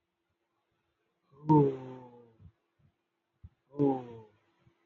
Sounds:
Sigh